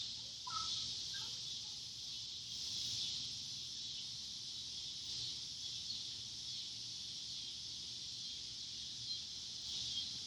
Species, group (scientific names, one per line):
Neotibicen pruinosus
Cicadidae